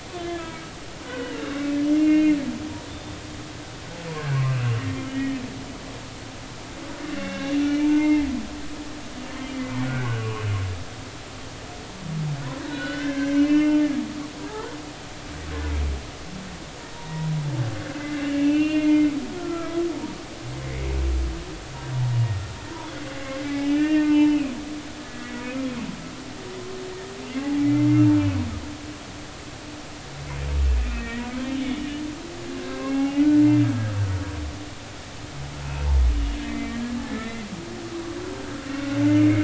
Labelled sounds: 0.2	1.4	humpback whale, 1.2 to 3.5 kHz
1.9	2.4	humpback whale, 2.0 to 2.8 kHz
2.9	3.2	humpback whale, 3.4 to 3.7 kHz
4.5	5.4	humpback whale, 1.8 to 3.2 kHz
7.1	8.3	humpback whale, 0.83 to 2.9 kHz
9.8	10.4	humpback whale, 0.96 to 1.6 kHz
12.6	13.8	humpback whale, 1.4 to 4.3 kHz
14.5	14.7	humpback whale, 1.2 to 1.5 kHz
16.9	17.3	humpback whale, 0.90 to 0.99 kHz
17.9	19.8	humpback whale, 1.2 to 3.2 kHz
23.1	24.5	humpback whale, 0.83 to 3.0 kHz
25.0	25.4	humpback whale, 1.7 to 2.0 kHz
27.4	27.8	humpback whale, 0.80 to 2.4 kHz
30.9	31.3	humpback whale, 1.8 to 2.0 kHz
32.6	33.5	humpback whale, 0.80 to 2.9 kHz
36.4	37.4	humpback whale, 1.7 to 2.3 kHz
38.3	38.6	humpback whale, 1.4 to 1.7 kHz

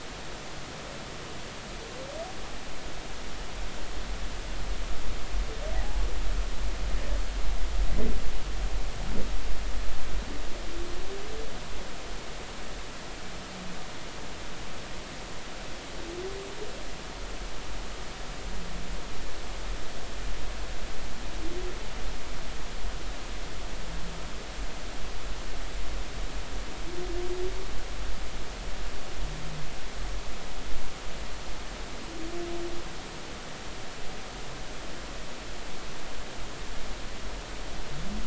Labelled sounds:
5.8	6.0	humpback whale, 0.80 to 1.0 kHz

